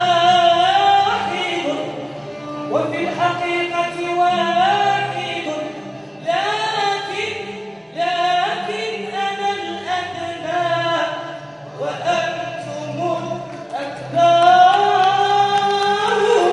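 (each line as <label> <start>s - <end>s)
A man is singing in a high tone with short pauses. 0.0s - 14.1s
Audience applause overlaps with singing. 14.1s - 16.5s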